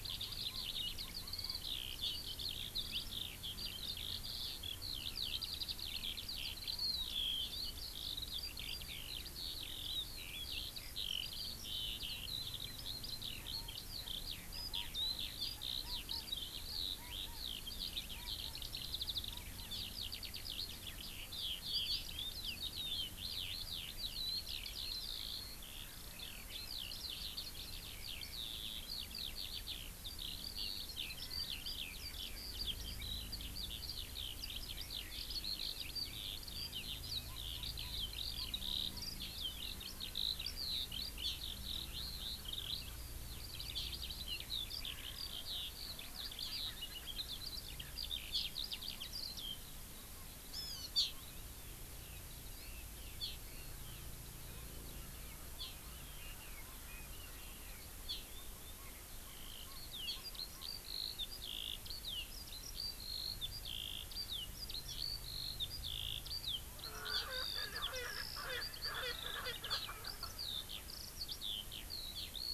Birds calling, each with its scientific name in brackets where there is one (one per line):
Chinese Hwamei (Garrulax canorus)
Eurasian Skylark (Alauda arvensis)
Hawaii Amakihi (Chlorodrepanis virens)
Erckel's Francolin (Pternistis erckelii)